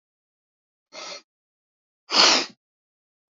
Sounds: Sniff